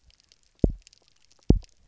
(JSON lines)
{"label": "biophony, double pulse", "recorder": "SoundTrap 300"}